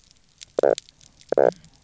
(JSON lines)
{"label": "biophony, knock croak", "recorder": "SoundTrap 300"}